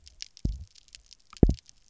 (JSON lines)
{"label": "biophony, double pulse", "recorder": "SoundTrap 300"}